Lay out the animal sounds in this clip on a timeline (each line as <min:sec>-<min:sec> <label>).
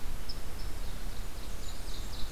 0:00.7-0:02.3 Ovenbird (Seiurus aurocapilla)
0:01.0-0:02.3 Blackburnian Warbler (Setophaga fusca)